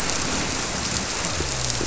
{"label": "biophony", "recorder": "SoundTrap 300"}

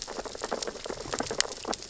{"label": "biophony, sea urchins (Echinidae)", "recorder": "SoundTrap 600 or HydroMoth"}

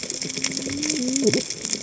{"label": "biophony, cascading saw", "recorder": "HydroMoth"}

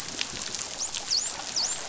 {"label": "biophony, dolphin", "recorder": "SoundTrap 500"}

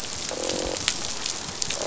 {"label": "biophony, croak", "recorder": "SoundTrap 500"}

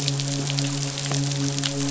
{"label": "biophony, midshipman", "recorder": "SoundTrap 500"}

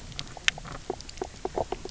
{"label": "biophony, knock croak", "recorder": "SoundTrap 300"}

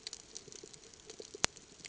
{"label": "ambient", "recorder": "HydroMoth"}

